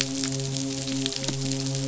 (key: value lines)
label: biophony, midshipman
recorder: SoundTrap 500